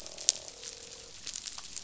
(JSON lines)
{"label": "biophony, croak", "recorder": "SoundTrap 500"}